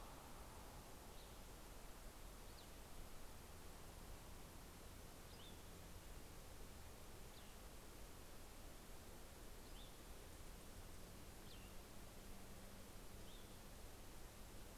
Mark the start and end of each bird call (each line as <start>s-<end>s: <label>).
0.0s-13.9s: Cassin's Vireo (Vireo cassinii)